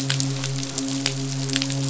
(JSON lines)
{"label": "biophony, midshipman", "recorder": "SoundTrap 500"}